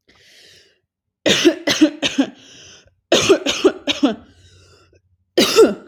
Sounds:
Cough